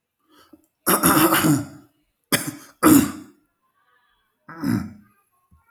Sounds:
Throat clearing